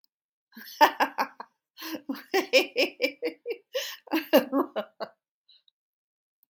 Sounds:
Laughter